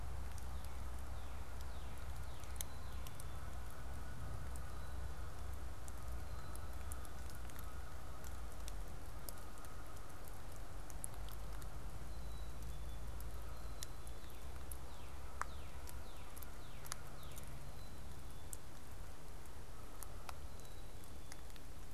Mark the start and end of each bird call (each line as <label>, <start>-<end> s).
Northern Cardinal (Cardinalis cardinalis), 0.0-3.1 s
Canada Goose (Branta canadensis), 2.2-21.9 s
Black-capped Chickadee (Poecile atricapillus), 2.4-3.6 s
Black-capped Chickadee (Poecile atricapillus), 6.1-7.3 s
Black-capped Chickadee (Poecile atricapillus), 11.9-13.1 s
Northern Cardinal (Cardinalis cardinalis), 13.9-17.5 s
Black-capped Chickadee (Poecile atricapillus), 17.5-18.7 s
Black-capped Chickadee (Poecile atricapillus), 20.5-21.6 s